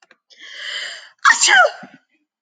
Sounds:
Sneeze